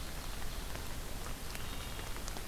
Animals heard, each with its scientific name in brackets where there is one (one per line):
Wood Thrush (Hylocichla mustelina)